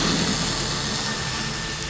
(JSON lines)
{"label": "anthrophony, boat engine", "recorder": "SoundTrap 500"}